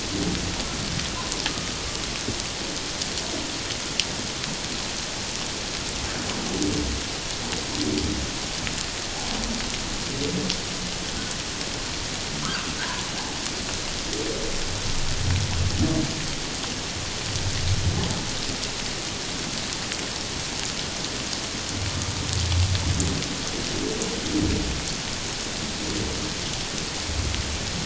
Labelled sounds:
12.4	12.7	humpback whale, 0.97 to 1.7 kHz

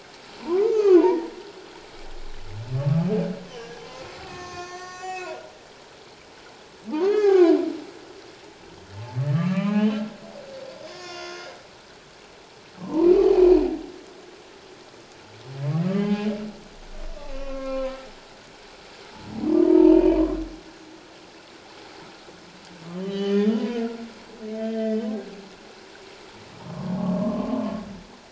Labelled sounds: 0.4	1.3	humpback whale, 0.84 to 1.4 kHz
2.8	3.1	humpback whale, 1.1 to 1.2 kHz
4.2	5.4	humpback whale, 1.0 to 7.5 kHz
6.9	7.6	humpback whale, 0.78 to 6.8 kHz
9.3	10.0	humpback whale, 0.78 to 4.0 kHz
10.8	11.6	humpback whale, 0.97 to 5.4 kHz
12.8	13.6	humpback whale, 0.84 to 2.6 kHz
15.9	16.3	humpback whale, 0.78 to 3.2 kHz
17.2	18.0	humpback whale, 0.97 to 4.3 kHz
19.6	20.2	humpback whale, 0.84 to 2.6 kHz
22.9	23.6	humpback whale, 1.7 to 3.2 kHz
24.6	25.0	humpback whale, 1.5 to 3.2 kHz
26.6	27.6	humpback whale, 0.88 to 1.2 kHz

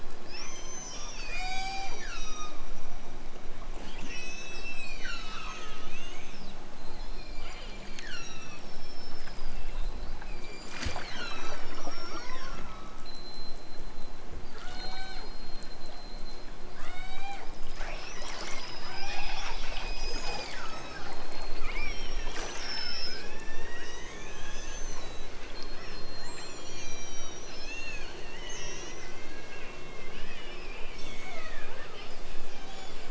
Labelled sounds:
1.2	2.7	killer whale, southern Alaska resident, 0.41 to 8.0 kHz
4.0	5.9	killer whale, southern Alaska resident, 0.83 to 8.0 kHz
6.8	8.8	killer whale, southern Alaska resident, 0.37 to 8.0 kHz
10.2	13.2	killer whale, southern Alaska resident, 0.69 to 8.0 kHz
14.5	15.4	killer whale, southern Alaska resident, 0.37 to 8.0 kHz
16.8	17.5	killer whale, southern Alaska resident, 0.51 to 8.0 kHz
18.8	20.9	killer whale, southern Alaska resident, 0.28 to 8.0 kHz
21.8	29.1	killer whale, southern Alaska resident, 0.64 to 8.0 kHz
30.9	31.8	killer whale, southern Alaska resident, 0.69 to 8.0 kHz

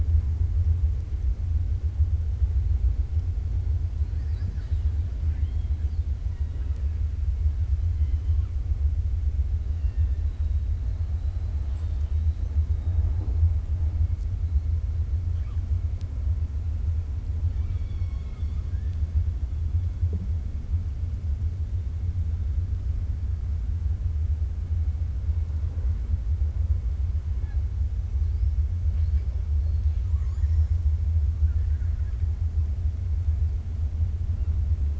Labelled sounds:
5.2	5.9	killer whale, 0.87 to 4.0 kHz
6.2	6.9	killer whale, 0.93 to 3.8 kHz
7.9	8.5	killer whale, 1.1 to 3.3 kHz
9.7	10.2	killer whale, 1.8 to 3.7 kHz
11.5	12.4	killer whale, 0.88 to 5.1 kHz
17.4	19.0	killer whale, 1.1 to 5.5 kHz
29.6	30.8	killer whale, 0.96 to 7.4 kHz
31.4	32.2	killer whale, 0.53 to 2.2 kHz

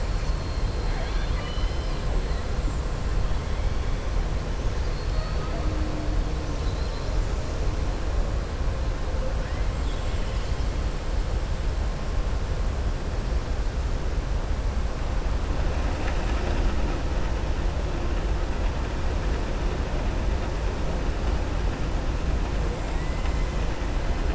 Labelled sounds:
0.8	2.0	killer whale, southern resident, 0.71 to 5.2 kHz
4.8	5.4	killer whale, southern resident, 3.7 to 4.8 kHz
22.8	23.5	killer whale, southern resident, 1.9 to 3.7 kHz

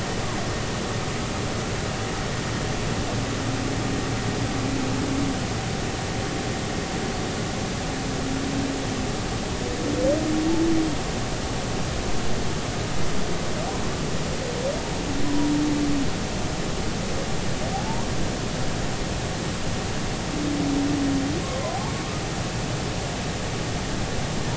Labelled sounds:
15.2	15.5	humpback whale, 0.93 to 1.0 kHz

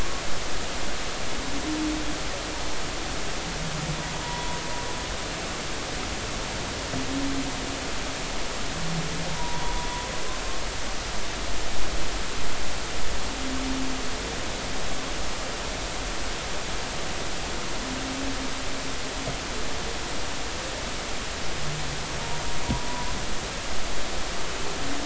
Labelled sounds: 4.2	4.6	humpback whale, 0.86 to 1.0 kHz
9.3	9.9	humpback whale, 0.90 to 3.5 kHz

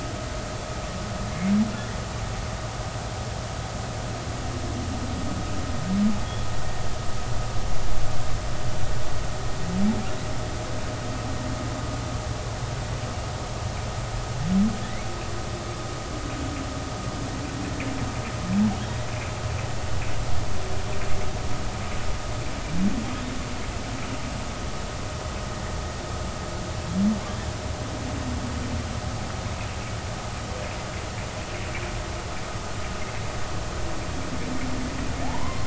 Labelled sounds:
14.8	15.1	humpback whale, 1.7 to 2.3 kHz
19.1	19.3	humpback whale, 2.3 to 2.6 kHz
35.2	35.6	humpback whale, 0.80 to 1.2 kHz

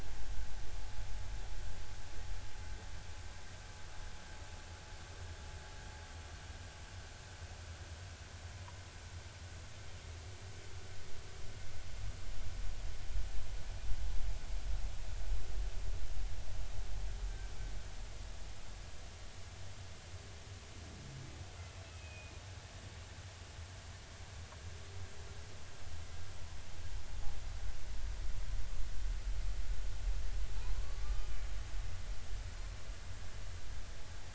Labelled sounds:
17.3	17.5	humpback whale, 1.5 to 1.6 kHz
21.8	22.4	humpback whale, 2.4 to 2.7 kHz
30.7	31.3	humpback whale, 0.96 to 1.2 kHz

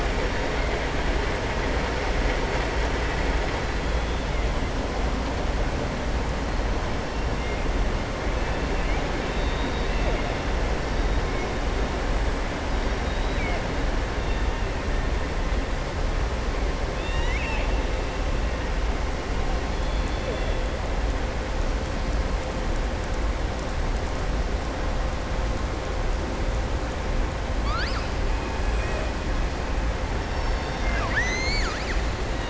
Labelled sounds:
9.2	10.3	killer whale, southern resident, 0.54 to 4.7 kHz
16.9	17.7	killer whale, southern resident, 0.94 to 7.4 kHz
27.5	28.1	killer whale, southern resident, 1.2 to 5.2 kHz
28.6	29.1	killer whale, southern resident, 1.7 to 3.4 kHz
30.2	32.0	killer whale, southern resident, 1.0 to 7.2 kHz

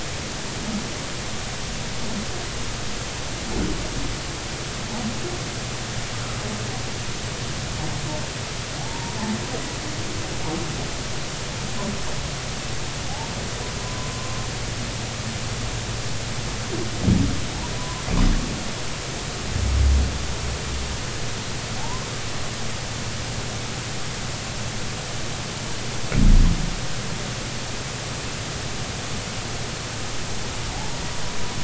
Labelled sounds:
8.8	9.2	humpback whale, 0.80 to 0.99 kHz
14.1	14.4	humpback whale, 0.99 to 1.1 kHz
17.8	18.0	humpback whale, 0.96 to 1.1 kHz
21.8	22.0	humpback whale, 0.80 to 1.1 kHz

